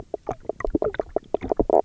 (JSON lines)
{"label": "biophony, knock croak", "recorder": "SoundTrap 300"}